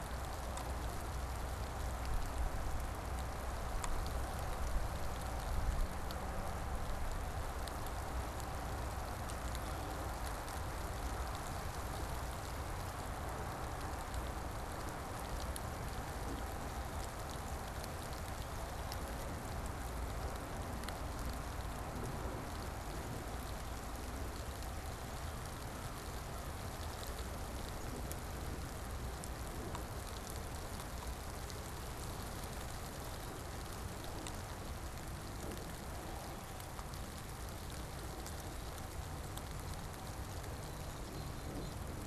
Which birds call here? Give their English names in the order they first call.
Black-capped Chickadee